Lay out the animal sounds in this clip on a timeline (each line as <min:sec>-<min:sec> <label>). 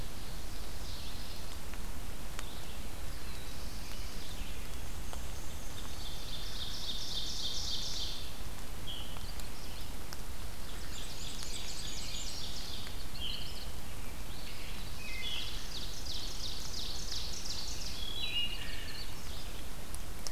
0:00.6-0:01.6 Ovenbird (Seiurus aurocapilla)
0:02.9-0:04.8 Black-throated Blue Warbler (Setophaga caerulescens)
0:04.6-0:06.1 Black-and-white Warbler (Mniotilta varia)
0:05.5-0:08.5 Ovenbird (Seiurus aurocapilla)
0:08.7-0:09.2 Veery (Catharus fuscescens)
0:10.4-0:13.1 Ovenbird (Seiurus aurocapilla)
0:10.7-0:12.7 Black-and-white Warbler (Mniotilta varia)
0:13.0-0:13.8 Veery (Catharus fuscescens)
0:14.8-0:15.7 Wood Thrush (Hylocichla mustelina)
0:15.2-0:18.2 Ovenbird (Seiurus aurocapilla)
0:17.9-0:19.1 Wood Thrush (Hylocichla mustelina)